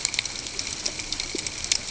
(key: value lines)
label: ambient
recorder: HydroMoth